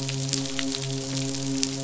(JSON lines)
{"label": "biophony, midshipman", "recorder": "SoundTrap 500"}